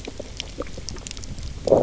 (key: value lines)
label: biophony, knock croak
recorder: SoundTrap 300